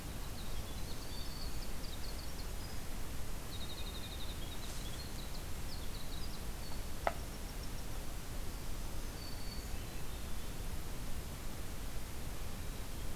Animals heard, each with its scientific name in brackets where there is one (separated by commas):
Winter Wren (Troglodytes hiemalis), Black-throated Green Warbler (Setophaga virens), Swainson's Thrush (Catharus ustulatus)